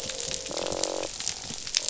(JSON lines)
{"label": "biophony, croak", "recorder": "SoundTrap 500"}